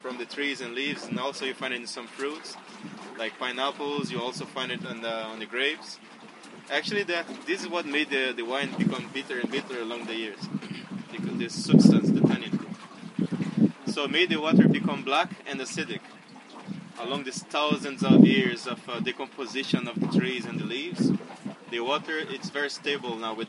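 0.0s A man is speaking English. 11.7s
11.7s The wind blows. 12.1s
12.2s A man is speaking English while wind blows. 23.5s

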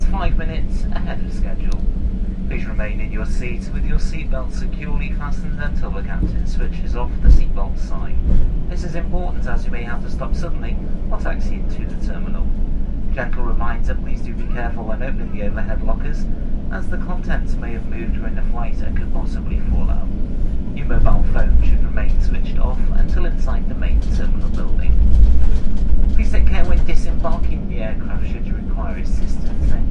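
0.0s A flight attendant is giving instructions to passengers using a microphone. 29.8s
0.0s Airplane engines hum inside the cabin. 29.9s

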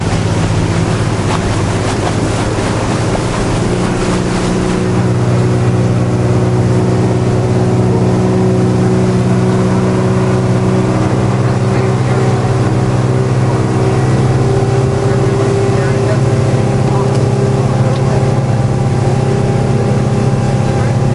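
0.1s Sharp noise from a motorboat engine with waves in the background. 21.1s

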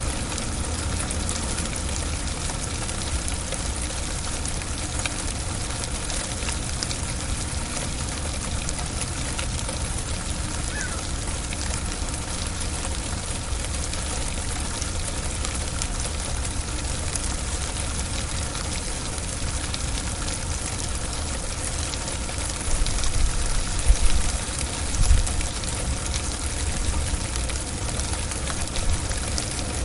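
0.0s Heavy rain pouring steadily, creating a dense and continuous sound. 29.8s

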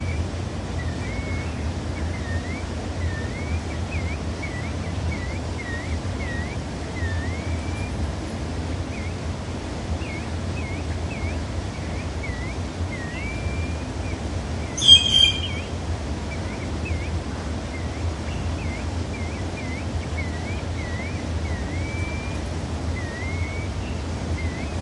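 0.0s A bird chirps repeatedly and quietly outdoors. 7.9s
0.0s Crested Partridges chirping quietly and repeatedly outdoors. 7.9s
6.8s A Crested Partridge chirps continuously outdoors. 8.0s
6.8s A bird is chirping continuously outdoors. 8.0s
8.8s A bird chirps repeatedly and quietly outdoors. 14.6s
8.8s Crested Partridges chirping quietly and repeatedly outdoors. 14.6s
12.9s A Crested Partridge chirps continuously outdoors. 13.9s
12.9s A bird is chirping continuously outdoors. 13.9s
14.7s A bird calls loudly once outdoors. 15.5s
14.7s A loud, single Green Jay call outdoors. 15.5s
16.2s A bird chirps repeatedly and quietly outdoors. 24.8s
16.2s Crested Partridges chirping quietly and repeatedly outdoors. 24.8s
21.6s A Crested Partridge chirps continuously outdoors. 23.6s
21.6s A bird is chirping continuously outdoors. 23.6s

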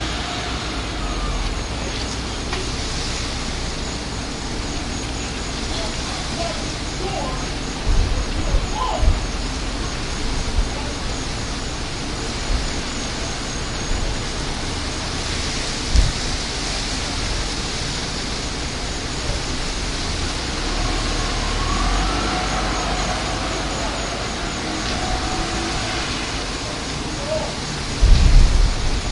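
0.0s A car is driving with a faint high-pitched peeping sound in the background. 7.9s
5.8s A car is passing by with faint yelling heard in the background. 9.3s
9.3s A car is driving with a faint high-pitched peeping sound in the background. 21.4s
21.3s A car starts loudly and then gradually fades away with a faint high-pitched peeping sound in the background. 27.9s
26.7s A car is passing by with faint yelling heard in the background. 28.0s
28.0s A loud car engine is heard with strumming noises in the background. 29.1s

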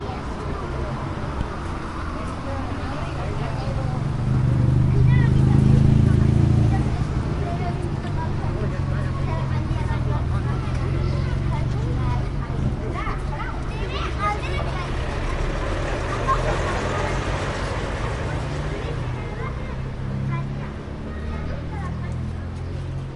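0.0s Several people talking indoors with overlapping voices and muffled traffic noise. 23.2s

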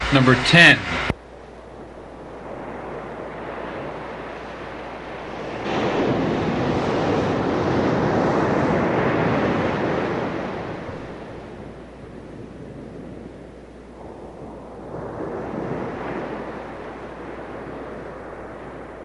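0.0s A person is speaking loudly with some interference. 1.1s
2.5s Waves are approaching, increasing in volume to a peak before fading out. 11.8s
14.0s The sound of a wave approaching, growing louder until it peaks, then fading away. 19.0s

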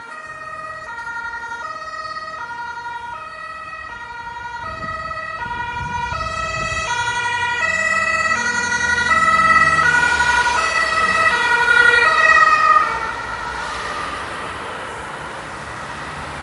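0.0s A siren rings repeatedly as it approaches, passes, and leaves. 16.4s
9.1s A car speeds past outside. 11.7s
13.0s Continuous traffic passing by outside. 16.4s

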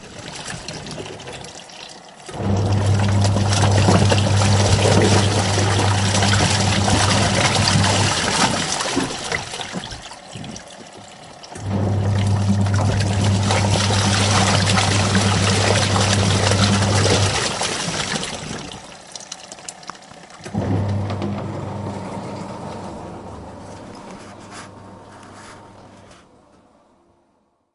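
0.0s Water dripping into a container. 2.2s
2.2s Water splashing inside a container. 10.7s
2.3s A loud mechanical buzzing sound. 8.5s
10.7s A faint machine hum is heard in standby. 11.5s
11.5s Water splashes in a container. 19.0s
11.6s A loud mechanical buzzing sound. 17.7s
18.6s A faint machine hum is heard in standby. 20.5s
20.5s A loud mechanical buzzing gradually fades. 24.6s

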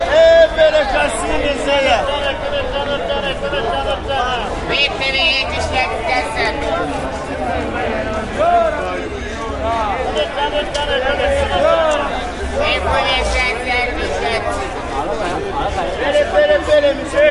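0.0s Multiple vendors are speaking simultaneously in a crowded street market. 4.6s
4.6s Overlapping voices with one vendor speaking loudly and distinctly. 6.6s
6.6s A slight drop in volume with subdued crowd chatter. 8.4s
8.4s Vendors speaking loudly and softly with occasional shouts. 10.1s
10.2s A man shouts rhythmically in a loud voice, possibly to attract attention. 15.9s
16.0s A man shouts rhythmically with a louder and more intense voice, likely continuing a market call. 17.3s

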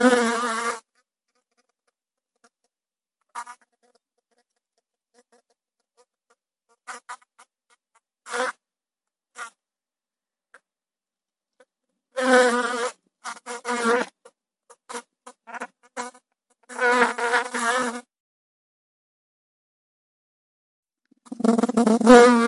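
0.0s A deep buzzing sound of a bee flying. 0.9s
3.3s A bee buzzes quietly in the distance. 3.7s
6.8s A high-pitched buzzing sound of a bee flying intermittently in the distance. 9.5s
12.2s A high-pitched buzzing sound that gets closer and louder. 18.1s
21.2s A bee buzzes loudly very close by. 22.5s

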